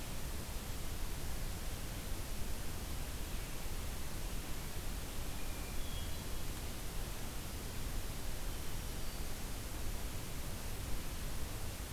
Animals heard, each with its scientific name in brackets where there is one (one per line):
Hermit Thrush (Catharus guttatus)